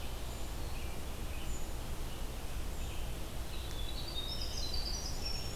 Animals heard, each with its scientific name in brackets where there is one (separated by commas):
Black-capped Chickadee (Poecile atricapillus), Winter Wren (Troglodytes hiemalis), Red-eyed Vireo (Vireo olivaceus)